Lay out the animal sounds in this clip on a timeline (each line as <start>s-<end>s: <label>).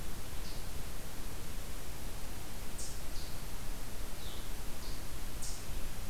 0.4s-6.1s: Eastern Chipmunk (Tamias striatus)